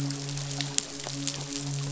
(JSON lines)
{"label": "biophony, midshipman", "recorder": "SoundTrap 500"}